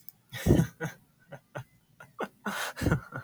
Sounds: Laughter